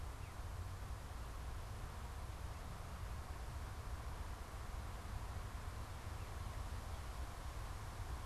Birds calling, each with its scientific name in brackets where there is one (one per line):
Veery (Catharus fuscescens)